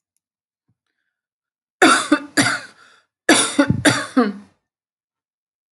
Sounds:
Cough